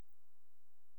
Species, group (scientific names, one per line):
Canariola emarginata
Orthoptera